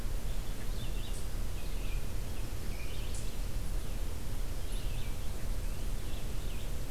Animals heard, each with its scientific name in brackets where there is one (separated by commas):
Red-eyed Vireo (Vireo olivaceus)